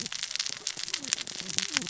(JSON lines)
{"label": "biophony, cascading saw", "recorder": "SoundTrap 600 or HydroMoth"}